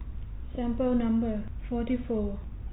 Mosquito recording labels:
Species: no mosquito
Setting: cup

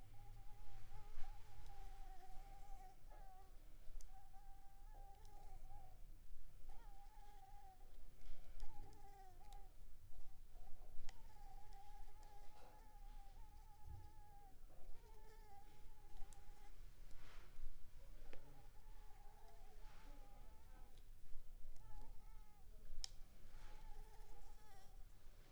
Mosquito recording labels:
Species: Anopheles arabiensis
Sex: male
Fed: unfed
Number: one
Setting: cup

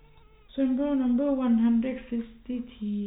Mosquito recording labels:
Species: no mosquito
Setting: cup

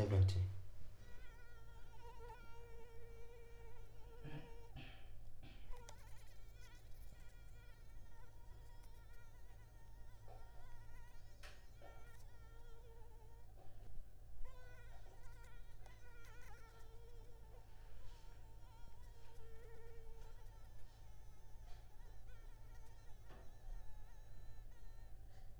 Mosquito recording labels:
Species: Anopheles arabiensis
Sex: female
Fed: blood-fed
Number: one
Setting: cup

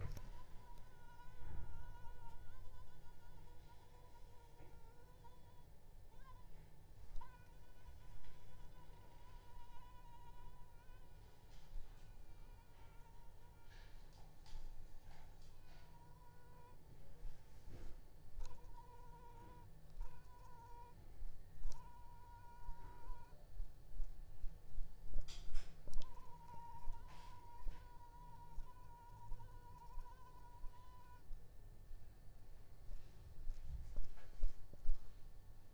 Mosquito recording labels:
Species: Anopheles arabiensis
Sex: female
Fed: unfed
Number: one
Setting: cup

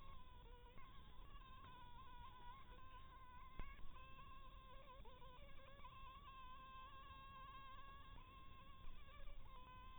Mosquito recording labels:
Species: Anopheles harrisoni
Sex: female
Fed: blood-fed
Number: one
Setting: cup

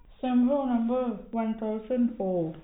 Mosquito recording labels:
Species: no mosquito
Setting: cup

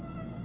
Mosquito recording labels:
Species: Aedes albopictus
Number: several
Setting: insect culture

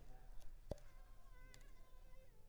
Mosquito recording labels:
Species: Culex pipiens complex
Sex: female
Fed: unfed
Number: one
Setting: cup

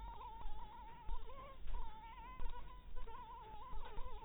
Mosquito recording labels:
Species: Anopheles dirus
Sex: female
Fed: blood-fed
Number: one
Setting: cup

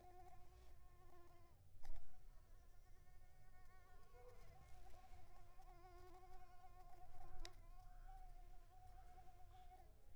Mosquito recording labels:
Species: Mansonia uniformis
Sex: female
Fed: unfed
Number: one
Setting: cup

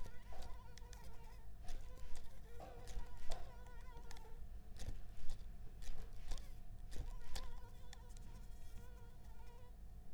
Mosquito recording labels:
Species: Anopheles arabiensis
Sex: female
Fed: unfed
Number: one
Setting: cup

